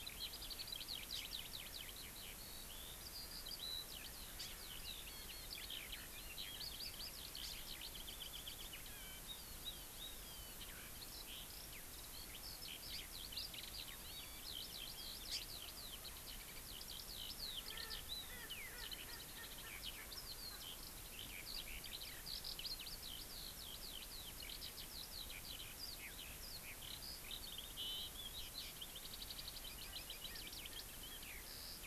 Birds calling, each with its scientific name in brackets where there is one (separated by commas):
Erckel's Francolin (Pternistis erckelii), Hawaii Amakihi (Chlorodrepanis virens), Eurasian Skylark (Alauda arvensis)